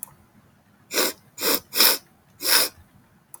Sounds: Sniff